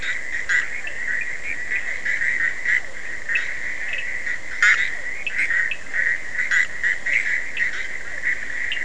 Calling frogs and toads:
Boana bischoffi, Physalaemus cuvieri, Sphaenorhynchus surdus

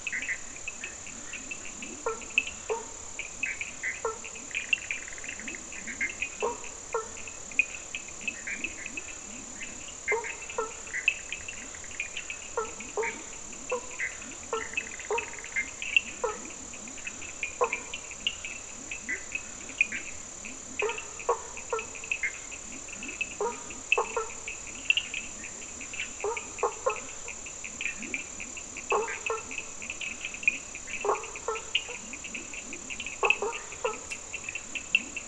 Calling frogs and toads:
Leptodactylus latrans, Sphaenorhynchus surdus, Boana faber, Boana bischoffi

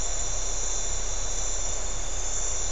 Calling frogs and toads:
none

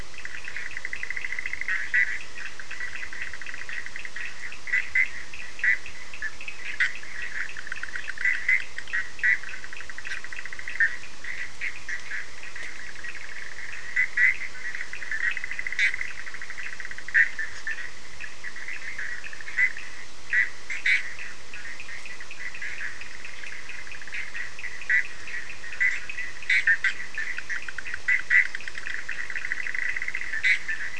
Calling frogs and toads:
Boana bischoffi, Sphaenorhynchus surdus

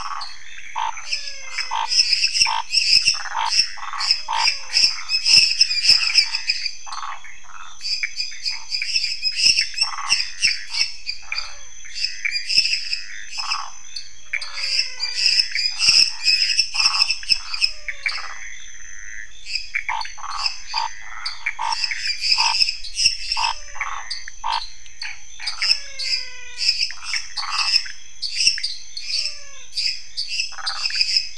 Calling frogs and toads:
Phyllomedusa sauvagii, Dendropsophus minutus, Pithecopus azureus, Dendropsophus nanus, Scinax fuscovarius, Physalaemus albonotatus, Boana raniceps

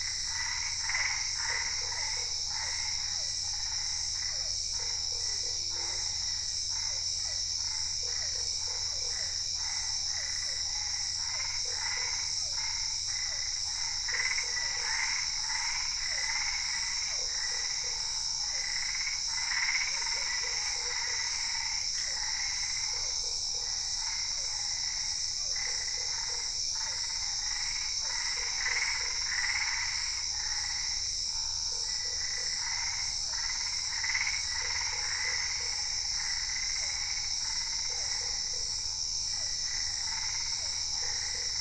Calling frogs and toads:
Physalaemus cuvieri, Boana albopunctata, Boana lundii

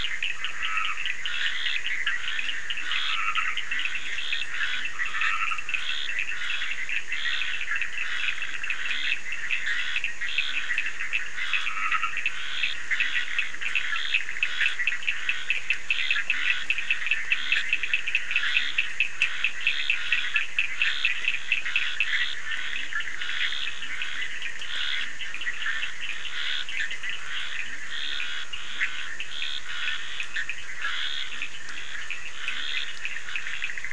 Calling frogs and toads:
Sphaenorhynchus surdus, Boana bischoffi, Scinax perereca, Dendropsophus nahdereri, Leptodactylus latrans

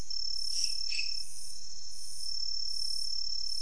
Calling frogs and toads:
Dendropsophus minutus

